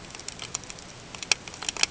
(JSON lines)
{"label": "ambient", "recorder": "HydroMoth"}